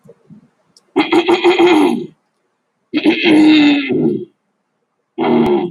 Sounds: Throat clearing